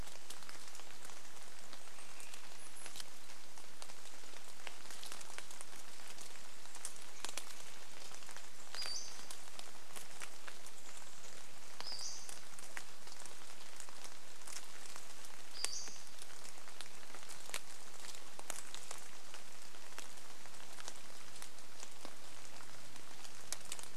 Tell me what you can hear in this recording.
rain, Swainson's Thrush call, unidentified bird chip note, Pacific-slope Flycatcher call, Chestnut-backed Chickadee call